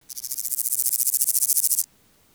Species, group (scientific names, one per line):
Stenobothrus stigmaticus
Orthoptera